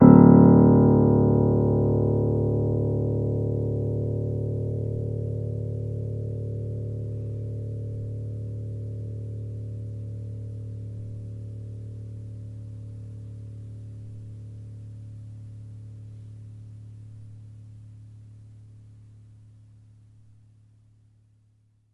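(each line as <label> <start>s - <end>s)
A single piano note plays with gradually decreasing volume. 0.0s - 19.4s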